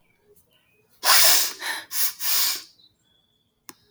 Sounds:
Sniff